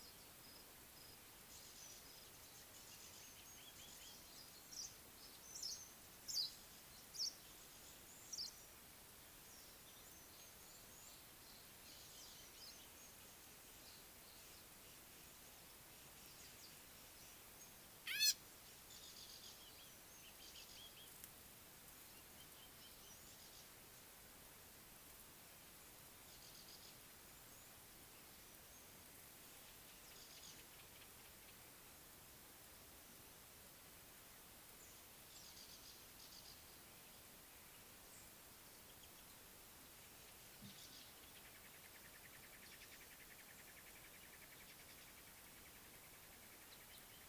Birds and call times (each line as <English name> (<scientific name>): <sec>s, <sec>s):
Gray-backed Camaroptera (Camaroptera brevicaudata): 18.2s